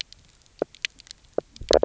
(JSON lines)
{"label": "biophony, knock croak", "recorder": "SoundTrap 300"}